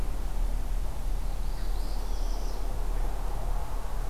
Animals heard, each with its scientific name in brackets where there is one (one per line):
Northern Parula (Setophaga americana)